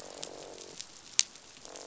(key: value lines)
label: biophony, croak
recorder: SoundTrap 500